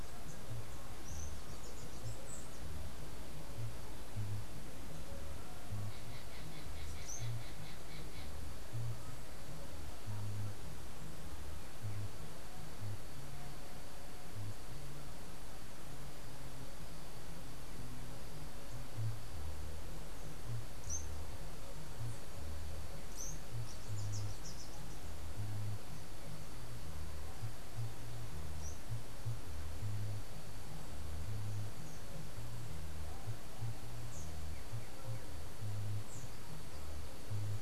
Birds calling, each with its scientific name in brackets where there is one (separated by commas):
unidentified bird, Andean Emerald (Uranomitra franciae), Chestnut-capped Brushfinch (Arremon brunneinucha)